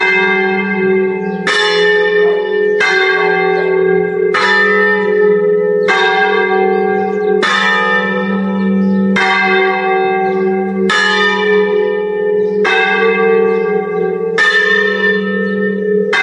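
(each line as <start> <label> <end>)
0.0 Bell rings alternating between low and high pitches in a rhythmic pattern. 16.2
1.1 A bird chirps quietly in the background. 1.6
2.0 A dog barks quietly in the distance. 2.6
3.4 A dog barks in the distance. 4.0
3.5 A bird chirps quietly in the background. 3.8
4.7 A few birds chirp quietly in the background. 16.2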